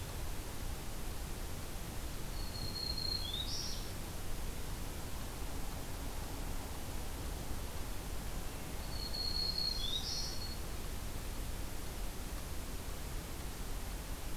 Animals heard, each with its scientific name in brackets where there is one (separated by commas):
Red-eyed Vireo (Vireo olivaceus), Black-throated Green Warbler (Setophaga virens)